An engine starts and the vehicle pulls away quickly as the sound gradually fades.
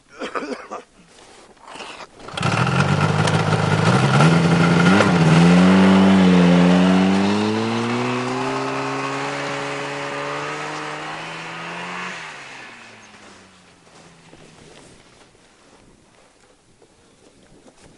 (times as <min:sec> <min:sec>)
0:02.0 0:15.0